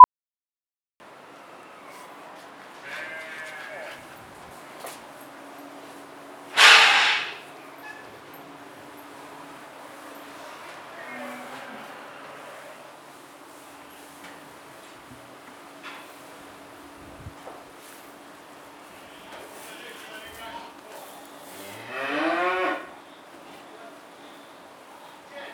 How many farm animals are present?
two